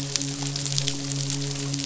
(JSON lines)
{"label": "biophony, midshipman", "recorder": "SoundTrap 500"}